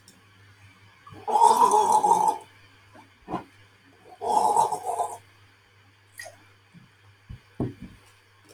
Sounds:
Throat clearing